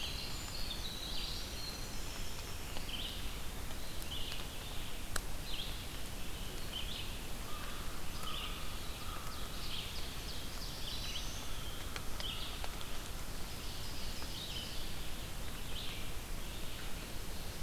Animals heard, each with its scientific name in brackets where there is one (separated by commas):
Black-throated Blue Warbler (Setophaga caerulescens), Ovenbird (Seiurus aurocapilla), Winter Wren (Troglodytes hiemalis), Red-eyed Vireo (Vireo olivaceus), American Crow (Corvus brachyrhynchos)